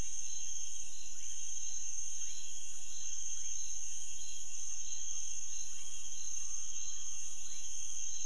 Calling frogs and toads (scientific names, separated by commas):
Leptodactylus fuscus